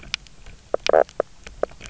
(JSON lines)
{"label": "biophony, knock croak", "recorder": "SoundTrap 300"}